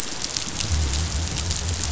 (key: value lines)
label: biophony
recorder: SoundTrap 500